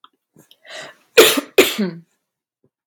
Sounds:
Cough